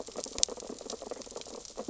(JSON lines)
{"label": "biophony, sea urchins (Echinidae)", "recorder": "SoundTrap 600 or HydroMoth"}